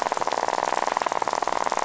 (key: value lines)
label: biophony, rattle
recorder: SoundTrap 500